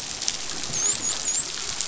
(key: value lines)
label: biophony, dolphin
recorder: SoundTrap 500